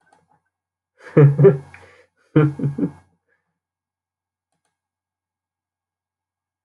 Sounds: Laughter